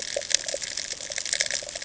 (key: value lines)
label: ambient
recorder: HydroMoth